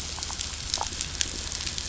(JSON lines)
{"label": "anthrophony, boat engine", "recorder": "SoundTrap 500"}